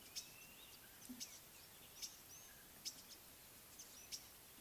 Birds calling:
Green-winged Pytilia (Pytilia melba)

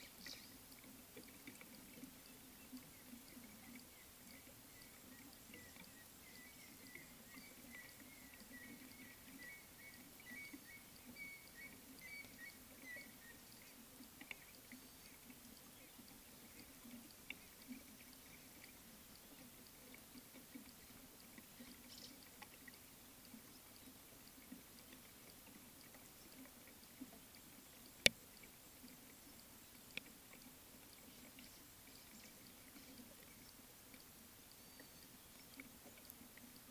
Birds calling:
African Gray Hornbill (Lophoceros nasutus)

